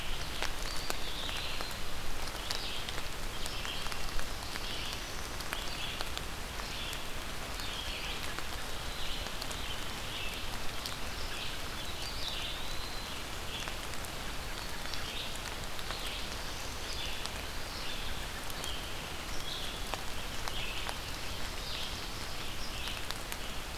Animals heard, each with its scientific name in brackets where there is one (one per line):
Ovenbird (Seiurus aurocapilla)
Red-eyed Vireo (Vireo olivaceus)
Eastern Wood-Pewee (Contopus virens)